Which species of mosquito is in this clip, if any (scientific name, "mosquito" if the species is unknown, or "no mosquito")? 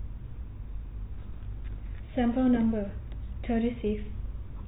no mosquito